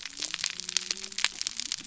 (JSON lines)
{"label": "biophony", "recorder": "SoundTrap 300"}